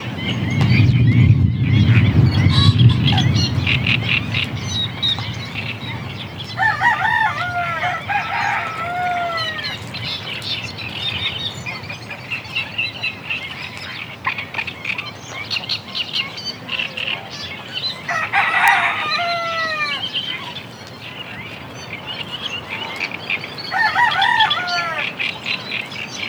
What is chirping?
birds